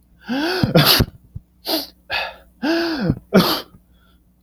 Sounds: Sneeze